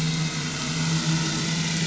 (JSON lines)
{"label": "anthrophony, boat engine", "recorder": "SoundTrap 500"}